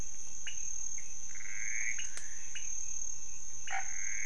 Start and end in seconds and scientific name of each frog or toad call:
0.0	4.2	Leptodactylus podicipinus
0.0	4.2	Pithecopus azureus
3.6	3.9	Boana raniceps